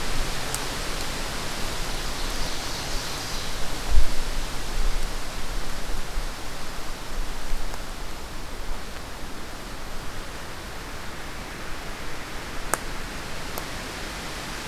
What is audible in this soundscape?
Ovenbird